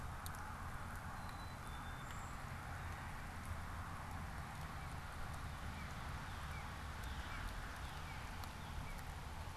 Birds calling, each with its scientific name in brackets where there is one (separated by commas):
Black-capped Chickadee (Poecile atricapillus), Northern Cardinal (Cardinalis cardinalis), Brown Creeper (Certhia americana)